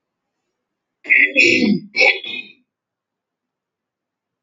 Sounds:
Throat clearing